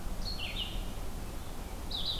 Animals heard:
Red-eyed Vireo (Vireo olivaceus)

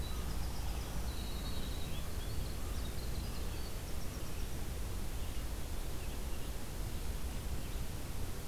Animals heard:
Winter Wren (Troglodytes hiemalis), Red-eyed Vireo (Vireo olivaceus), American Crow (Corvus brachyrhynchos)

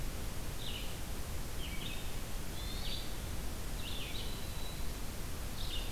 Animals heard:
Hermit Thrush (Catharus guttatus), Red-eyed Vireo (Vireo olivaceus), Black-throated Green Warbler (Setophaga virens)

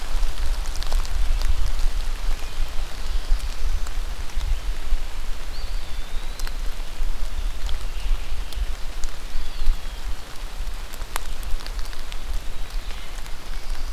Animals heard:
Eastern Wood-Pewee (Contopus virens)

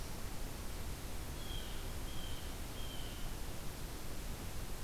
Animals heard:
Blue Jay (Cyanocitta cristata)

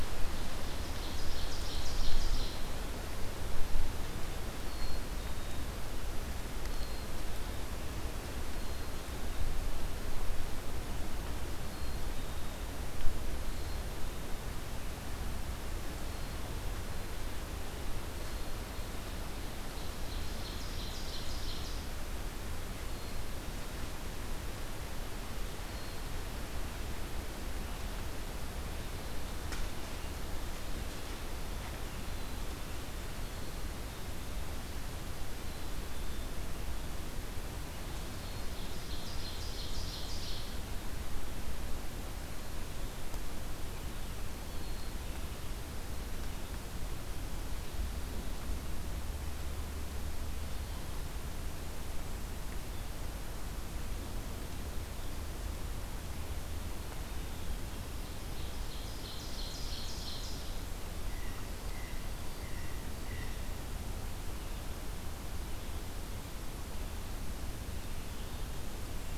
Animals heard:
Black-throated Green Warbler (Setophaga virens), Ovenbird (Seiurus aurocapilla), Black-capped Chickadee (Poecile atricapillus), American Crow (Corvus brachyrhynchos)

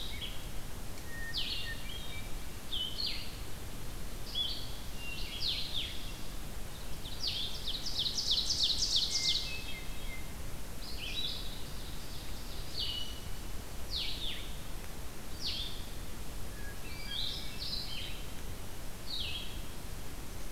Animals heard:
Red-eyed Vireo (Vireo olivaceus), Ovenbird (Seiurus aurocapilla), Hermit Thrush (Catharus guttatus), Eastern Wood-Pewee (Contopus virens)

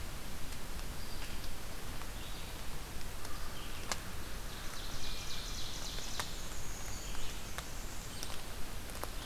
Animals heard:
Northern Parula (Setophaga americana), Blackburnian Warbler (Setophaga fusca), Hermit Thrush (Catharus guttatus), Ovenbird (Seiurus aurocapilla), Red-eyed Vireo (Vireo olivaceus)

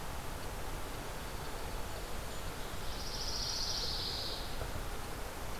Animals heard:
Ovenbird (Seiurus aurocapilla), Pine Warbler (Setophaga pinus), Dark-eyed Junco (Junco hyemalis)

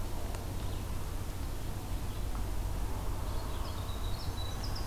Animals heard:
Winter Wren (Troglodytes hiemalis), Red-eyed Vireo (Vireo olivaceus)

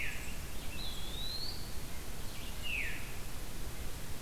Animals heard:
Eastern Wood-Pewee (Contopus virens), Winter Wren (Troglodytes hiemalis), Golden-crowned Kinglet (Regulus satrapa), Red-eyed Vireo (Vireo olivaceus), Veery (Catharus fuscescens), White-breasted Nuthatch (Sitta carolinensis)

